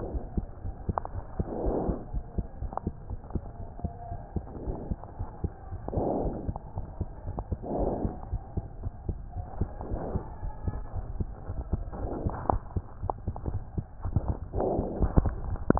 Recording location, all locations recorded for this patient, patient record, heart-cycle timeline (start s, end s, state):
aortic valve (AV)
aortic valve (AV)+pulmonary valve (PV)+tricuspid valve (TV)+mitral valve (MV)
#Age: Child
#Sex: Female
#Height: 96.0 cm
#Weight: 15.8 kg
#Pregnancy status: False
#Murmur: Absent
#Murmur locations: nan
#Most audible location: nan
#Systolic murmur timing: nan
#Systolic murmur shape: nan
#Systolic murmur grading: nan
#Systolic murmur pitch: nan
#Systolic murmur quality: nan
#Diastolic murmur timing: nan
#Diastolic murmur shape: nan
#Diastolic murmur grading: nan
#Diastolic murmur pitch: nan
#Diastolic murmur quality: nan
#Outcome: Normal
#Campaign: 2015 screening campaign
0.00	2.94	unannotated
2.94	3.07	diastole
3.07	3.19	S1
3.19	3.34	systole
3.34	3.44	S2
3.44	3.60	diastole
3.60	3.68	S1
3.68	3.80	systole
3.80	3.92	S2
3.92	4.10	diastole
4.10	4.20	S1
4.20	4.32	systole
4.32	4.44	S2
4.44	4.62	diastole
4.62	4.76	S1
4.76	4.88	systole
4.88	4.98	S2
4.98	5.20	diastole
5.20	5.28	S1
5.28	5.40	systole
5.40	5.54	S2
5.54	5.72	diastole
5.72	5.82	S1
5.82	5.94	systole
5.94	6.08	S2
6.08	6.22	diastole
6.22	6.36	S1
6.36	6.44	systole
6.44	6.56	S2
6.56	6.78	diastole
6.78	6.88	S1
6.88	6.98	systole
6.98	7.08	S2
7.08	7.26	diastole
7.26	7.36	S1
7.36	7.48	systole
7.48	7.60	S2
7.60	7.78	diastole
7.78	7.94	S1
7.94	8.02	systole
8.02	8.16	S2
8.16	8.30	diastole
8.30	8.42	S1
8.42	8.56	systole
8.56	8.66	S2
8.66	8.82	diastole
8.82	8.94	S1
8.94	9.06	systole
9.06	9.20	S2
9.20	9.36	diastole
9.36	9.46	S1
9.46	9.58	systole
9.58	9.72	S2
9.72	9.90	diastole
9.90	10.02	S1
10.02	10.12	systole
10.12	10.24	S2
10.24	10.42	diastole
10.42	10.54	S1
10.54	10.65	systole
10.65	10.75	S2
10.75	10.94	diastole
10.94	11.08	S1
11.08	11.16	systole
11.16	11.30	S2
11.30	11.48	diastole
11.48	11.60	S1
11.60	11.70	systole
11.70	11.84	S2
11.84	11.98	diastole
11.98	15.79	unannotated